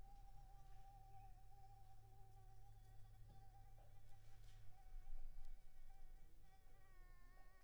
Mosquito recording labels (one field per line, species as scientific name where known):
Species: Anopheles arabiensis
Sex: female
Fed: unfed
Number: one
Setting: cup